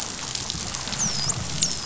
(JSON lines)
{"label": "biophony, dolphin", "recorder": "SoundTrap 500"}